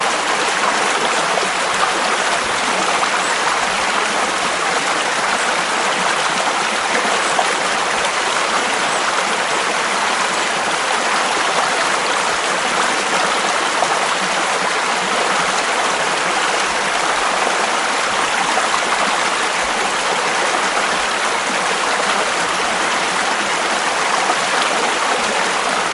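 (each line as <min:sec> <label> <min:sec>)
0:00.0 An echo of a stream of water is heard faintly in the background. 0:25.9
0:00.0 Water flowing rapidly and repeatedly outdoors. 0:25.9
0:08.6 A lever creaks once in the background. 0:09.5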